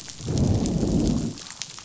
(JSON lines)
{"label": "biophony, growl", "recorder": "SoundTrap 500"}